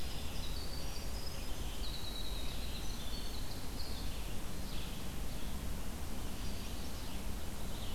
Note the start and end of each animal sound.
0.0s-4.3s: Winter Wren (Troglodytes hiemalis)
0.0s-7.9s: Red-eyed Vireo (Vireo olivaceus)
6.0s-7.1s: Chestnut-sided Warbler (Setophaga pensylvanica)
7.4s-7.9s: Ovenbird (Seiurus aurocapilla)

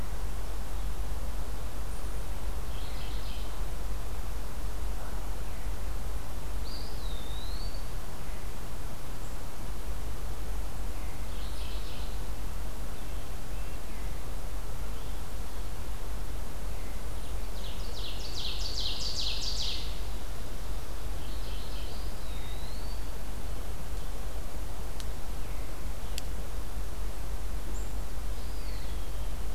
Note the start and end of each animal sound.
2.6s-3.5s: Mourning Warbler (Geothlypis philadelphia)
6.6s-8.0s: Eastern Wood-Pewee (Contopus virens)
11.1s-12.2s: Mourning Warbler (Geothlypis philadelphia)
12.8s-14.2s: Red-breasted Nuthatch (Sitta canadensis)
17.0s-19.9s: Ovenbird (Seiurus aurocapilla)
21.0s-22.0s: Mourning Warbler (Geothlypis philadelphia)
21.8s-23.2s: Eastern Wood-Pewee (Contopus virens)
28.2s-29.3s: Eastern Wood-Pewee (Contopus virens)

